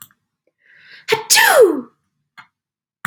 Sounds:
Sneeze